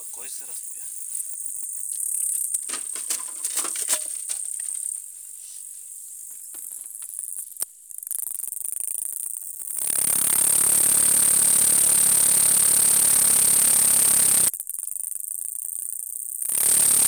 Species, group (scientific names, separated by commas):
Gampsocleis glabra, Orthoptera